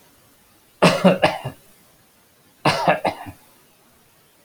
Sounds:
Cough